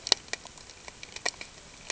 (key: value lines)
label: ambient
recorder: HydroMoth